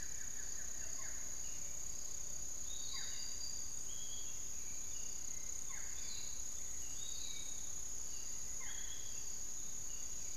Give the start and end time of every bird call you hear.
[0.00, 0.99] Buff-throated Woodcreeper (Xiphorhynchus guttatus)
[0.00, 8.39] Hauxwell's Thrush (Turdus hauxwelli)
[0.00, 10.37] Piratic Flycatcher (Legatus leucophaius)
[0.89, 10.37] Barred Forest-Falcon (Micrastur ruficollis)
[9.49, 10.37] Long-winged Antwren (Myrmotherula longipennis)

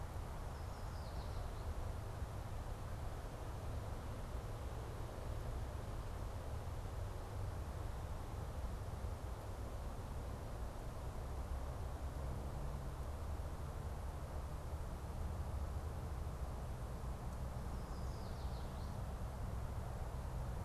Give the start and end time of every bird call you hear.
[0.21, 1.71] Yellow Warbler (Setophaga petechia)
[17.41, 19.21] Yellow Warbler (Setophaga petechia)

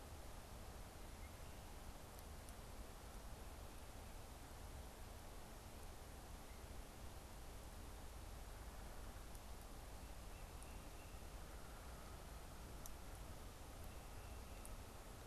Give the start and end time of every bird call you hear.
[10.23, 11.23] Tufted Titmouse (Baeolophus bicolor)

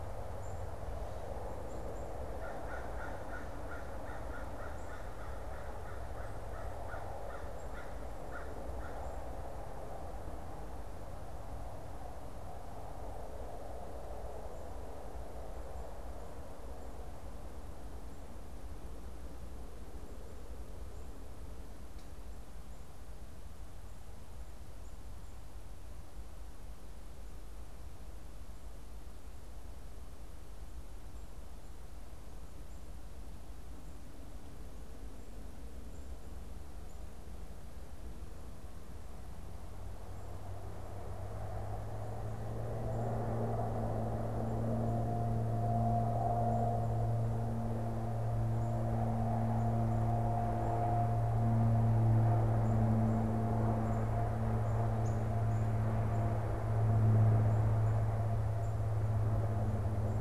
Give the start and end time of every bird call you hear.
[0.00, 8.13] Black-capped Chickadee (Poecile atricapillus)
[2.23, 9.53] American Crow (Corvus brachyrhynchos)
[52.23, 60.20] Black-capped Chickadee (Poecile atricapillus)

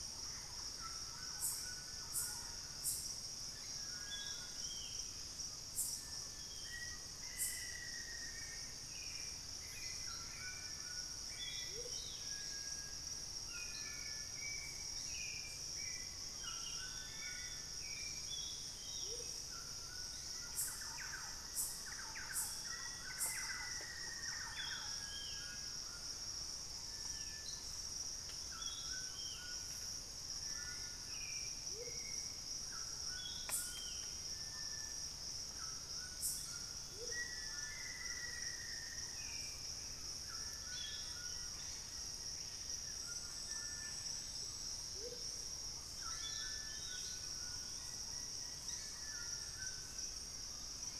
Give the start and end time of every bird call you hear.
[0.00, 18.24] Hauxwell's Thrush (Turdus hauxwelli)
[0.00, 50.99] White-throated Toucan (Ramphastos tucanus)
[0.04, 2.84] Thrush-like Wren (Campylorhynchus turdinus)
[3.44, 3.94] White-bellied Tody-Tyrant (Hemitriccus griseipectus)
[6.04, 8.04] Black-spotted Bare-eye (Phlegopsis nigromaculata)
[6.54, 8.74] Black-faced Antthrush (Formicarius analis)
[9.64, 20.44] White-bellied Tody-Tyrant (Hemitriccus griseipectus)
[11.64, 11.94] Amazonian Motmot (Momotus momota)
[18.94, 19.34] Amazonian Motmot (Momotus momota)
[20.14, 21.94] Plain-winged Antshrike (Thamnophilus schistaceus)
[20.44, 25.14] Thrush-like Wren (Campylorhynchus turdinus)
[22.54, 24.84] Black-faced Antthrush (Formicarius analis)
[24.34, 34.24] Ringed Antpipit (Corythopis torquatus)
[30.34, 32.34] Hauxwell's Thrush (Turdus hauxwelli)
[31.64, 31.94] Amazonian Motmot (Momotus momota)
[36.84, 37.24] Amazonian Motmot (Momotus momota)
[37.04, 39.24] Black-faced Antthrush (Formicarius analis)
[38.84, 40.14] Hauxwell's Thrush (Turdus hauxwelli)
[40.64, 42.84] Plain-winged Antshrike (Thamnophilus schistaceus)
[44.84, 45.24] Amazonian Motmot (Momotus momota)
[47.64, 49.44] Plain-winged Antshrike (Thamnophilus schistaceus)

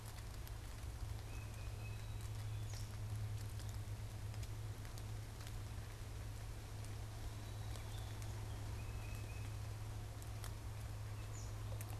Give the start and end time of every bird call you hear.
[0.00, 2.38] Tufted Titmouse (Baeolophus bicolor)
[1.68, 2.98] Black-capped Chickadee (Poecile atricapillus)
[7.28, 8.28] Black-capped Chickadee (Poecile atricapillus)
[8.57, 11.99] Tufted Titmouse (Baeolophus bicolor)
[11.18, 11.68] unidentified bird

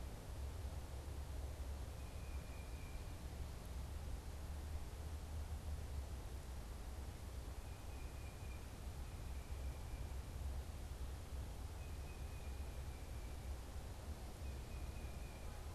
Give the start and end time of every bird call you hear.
[1.70, 3.30] Tufted Titmouse (Baeolophus bicolor)
[7.50, 10.20] Tufted Titmouse (Baeolophus bicolor)
[11.70, 15.70] Tufted Titmouse (Baeolophus bicolor)

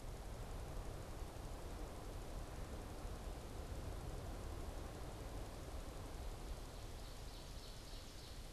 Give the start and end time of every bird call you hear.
[6.63, 8.43] Ovenbird (Seiurus aurocapilla)

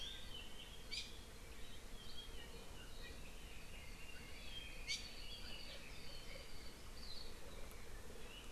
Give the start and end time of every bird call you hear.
[0.87, 1.07] Iiwi (Drepanis coccinea)
[4.87, 4.97] Iiwi (Drepanis coccinea)
[4.97, 5.87] Apapane (Himatione sanguinea)

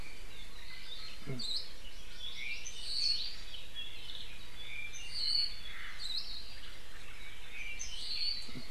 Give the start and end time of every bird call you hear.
[1.30, 1.70] Hawaii Akepa (Loxops coccineus)
[1.70, 2.70] Hawaii Amakihi (Chlorodrepanis virens)
[2.30, 5.70] Apapane (Himatione sanguinea)
[2.90, 3.40] Hawaii Creeper (Loxops mana)
[5.50, 6.20] Omao (Myadestes obscurus)
[5.90, 6.50] Hawaii Akepa (Loxops coccineus)
[7.40, 8.50] Apapane (Himatione sanguinea)

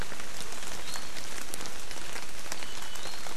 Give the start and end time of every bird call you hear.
[2.57, 3.07] Iiwi (Drepanis coccinea)

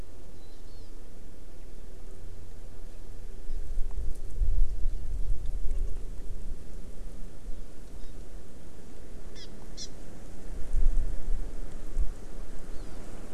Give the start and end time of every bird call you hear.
[0.31, 0.51] Warbling White-eye (Zosterops japonicus)
[0.61, 0.91] Hawaii Amakihi (Chlorodrepanis virens)
[8.01, 8.11] Hawaii Amakihi (Chlorodrepanis virens)
[9.31, 9.91] Hawaii Amakihi (Chlorodrepanis virens)
[12.71, 13.01] Hawaii Amakihi (Chlorodrepanis virens)

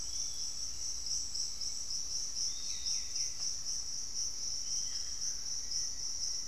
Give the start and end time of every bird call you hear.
[0.00, 6.47] Hauxwell's Thrush (Turdus hauxwelli)
[0.00, 6.47] Piratic Flycatcher (Legatus leucophaius)
[4.64, 5.74] Buff-throated Woodcreeper (Xiphorhynchus guttatus)
[5.44, 6.47] Black-faced Antthrush (Formicarius analis)

